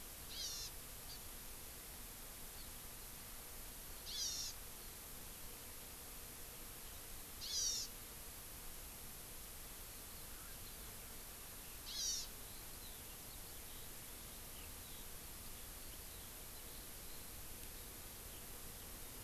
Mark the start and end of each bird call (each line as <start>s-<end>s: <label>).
0.2s-0.7s: Hawaii Amakihi (Chlorodrepanis virens)
1.0s-1.2s: Hawaii Amakihi (Chlorodrepanis virens)
4.0s-4.5s: Hawaii Amakihi (Chlorodrepanis virens)
7.3s-7.9s: Hawaii Amakihi (Chlorodrepanis virens)
11.8s-12.2s: Hawaii Amakihi (Chlorodrepanis virens)
12.4s-19.2s: Eurasian Skylark (Alauda arvensis)